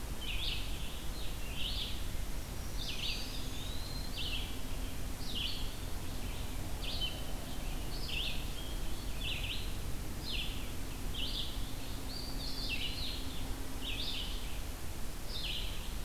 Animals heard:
Red-eyed Vireo (Vireo olivaceus)
Eastern Wood-Pewee (Contopus virens)
Black-throated Green Warbler (Setophaga virens)

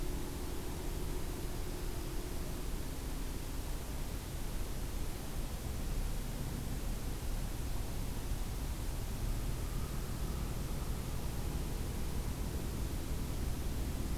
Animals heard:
Dark-eyed Junco (Junco hyemalis)

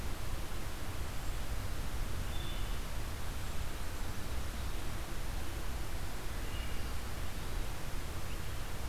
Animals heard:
Wood Thrush (Hylocichla mustelina)

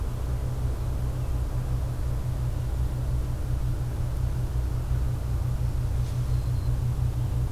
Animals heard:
Black-throated Green Warbler (Setophaga virens)

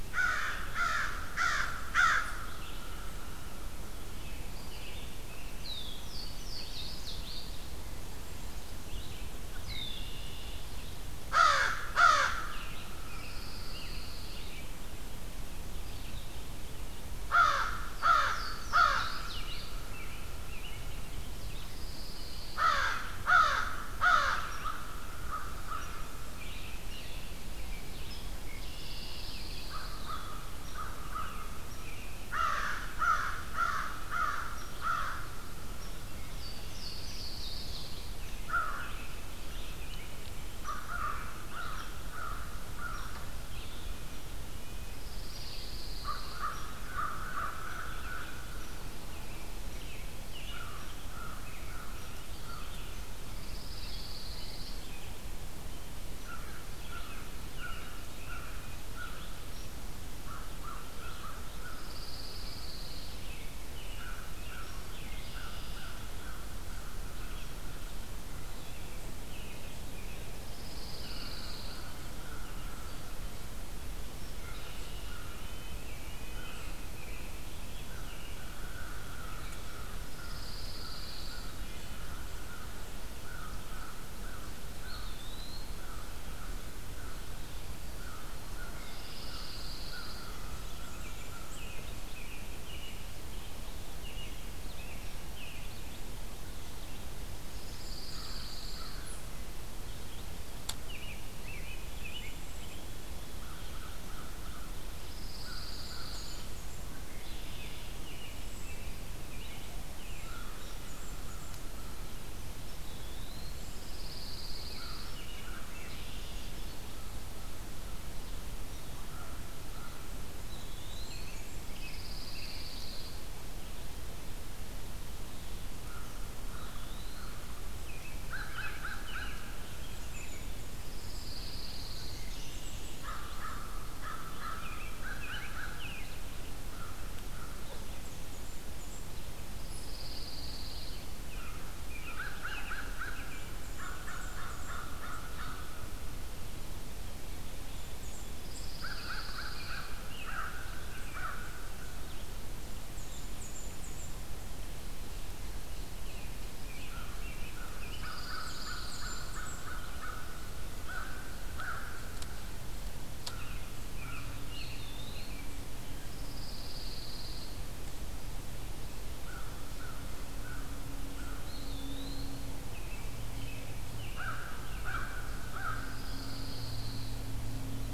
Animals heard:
Eastern Wood-Pewee (Contopus virens)
Louisiana Waterthrush (Parkesia motacilla)
Red-eyed Vireo (Vireo olivaceus)
American Robin (Turdus migratorius)
Black-capped Chickadee (Poecile atricapillus)
Red-winged Blackbird (Agelaius phoeniceus)
Blackburnian Warbler (Setophaga fusca)
Red-breasted Nuthatch (Sitta canadensis)
Pine Warbler (Setophaga pinus)
American Crow (Corvus brachyrhynchos)

